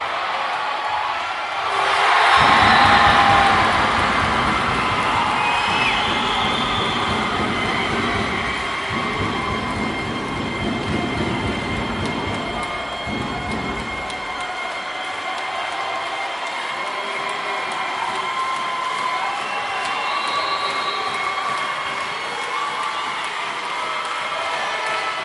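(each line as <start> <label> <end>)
0.0 Many people are cheering loudly in an arena. 25.2
1.6 Metallic bumping sounds muffled in the background. 14.0
2.1 An airhorn sounds in the distance. 3.2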